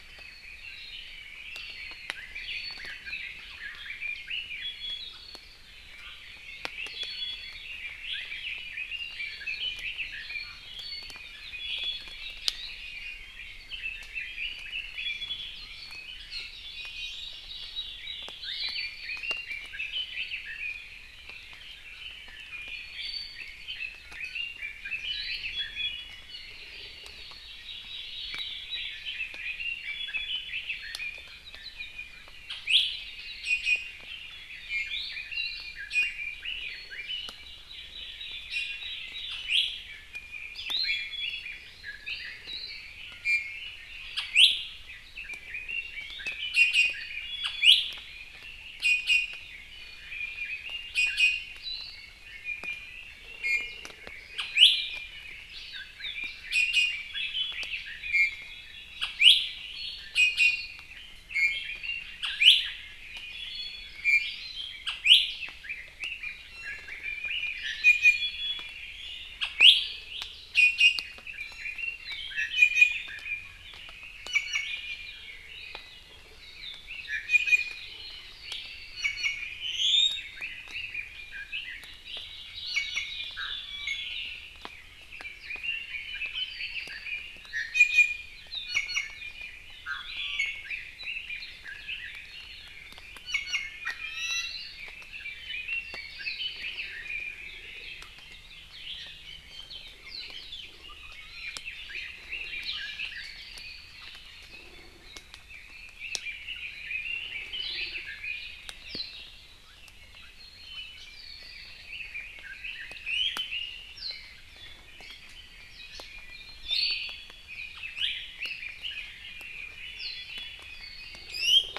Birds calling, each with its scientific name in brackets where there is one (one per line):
Apapane (Himatione sanguinea)
Omao (Myadestes obscurus)
Hawaii Amakihi (Chlorodrepanis virens)
Red-billed Leiothrix (Leiothrix lutea)
Iiwi (Drepanis coccinea)